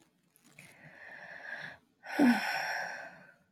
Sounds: Sigh